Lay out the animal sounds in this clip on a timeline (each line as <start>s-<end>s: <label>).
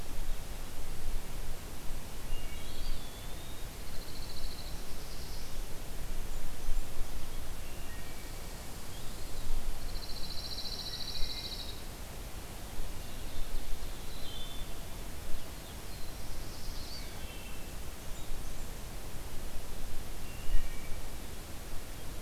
2.2s-2.9s: Wood Thrush (Hylocichla mustelina)
2.4s-4.0s: Eastern Wood-Pewee (Contopus virens)
3.7s-4.7s: Pine Warbler (Setophaga pinus)
4.6s-5.7s: Black-throated Blue Warbler (Setophaga caerulescens)
7.6s-8.5s: Wood Thrush (Hylocichla mustelina)
8.9s-9.8s: Eastern Wood-Pewee (Contopus virens)
9.6s-12.1s: Pine Warbler (Setophaga pinus)
10.8s-11.6s: Wood Thrush (Hylocichla mustelina)
12.3s-14.4s: Ovenbird (Seiurus aurocapilla)
14.0s-14.8s: Wood Thrush (Hylocichla mustelina)
15.4s-17.3s: Black-throated Blue Warbler (Setophaga caerulescens)
16.5s-18.0s: Eastern Wood-Pewee (Contopus virens)
16.9s-17.6s: Wood Thrush (Hylocichla mustelina)
17.7s-18.8s: Blackburnian Warbler (Setophaga fusca)
20.1s-21.0s: Wood Thrush (Hylocichla mustelina)